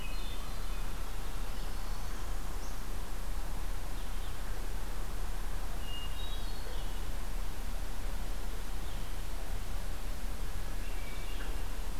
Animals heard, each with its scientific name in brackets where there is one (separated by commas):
Northern Parula (Setophaga americana), Hermit Thrush (Catharus guttatus)